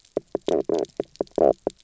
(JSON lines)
{"label": "biophony, knock croak", "recorder": "SoundTrap 300"}